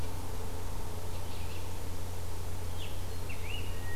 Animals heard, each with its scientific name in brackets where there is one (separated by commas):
unidentified call, Scarlet Tanager (Piranga olivacea)